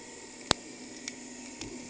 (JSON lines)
{"label": "anthrophony, boat engine", "recorder": "HydroMoth"}